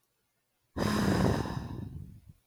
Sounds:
Sigh